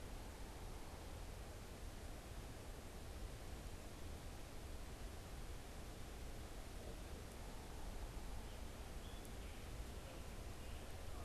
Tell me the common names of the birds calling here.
Scarlet Tanager